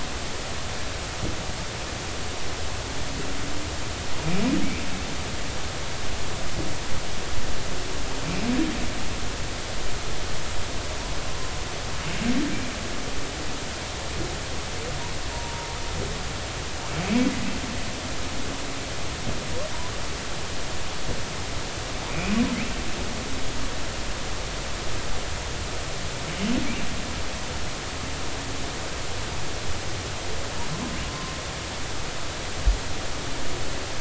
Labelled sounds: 15.3	15.8	humpback whale, 0.86 to 0.99 kHz
22.1	22.3	humpback whale, 2.2 to 2.6 kHz

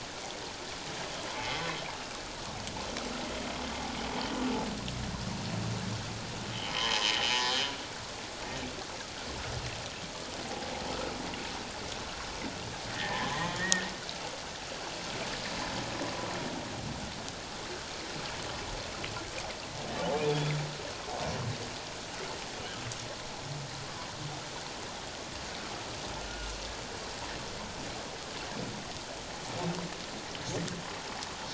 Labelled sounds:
1.3	1.6	humpback whale, 2.0 to 2.4 kHz
6.7	7.6	humpback whale, 0.88 to 5.1 kHz
12.9	13.9	humpback whale, 1.7 to 2.0 kHz
20.2	20.5	humpback whale, 3.2 to 3.6 kHz
26.3	26.6	humpback whale, 1.3 to 1.5 kHz

